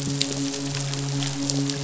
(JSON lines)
{"label": "biophony, midshipman", "recorder": "SoundTrap 500"}